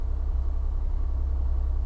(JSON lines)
{"label": "biophony", "recorder": "SoundTrap 300"}